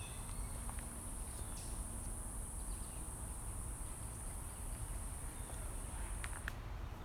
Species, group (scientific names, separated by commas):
Okanagana rimosa, Cicadidae